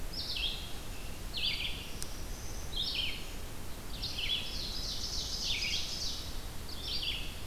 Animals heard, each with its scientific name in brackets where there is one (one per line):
Red-eyed Vireo (Vireo olivaceus)
Ovenbird (Seiurus aurocapilla)
Black-throated Green Warbler (Setophaga virens)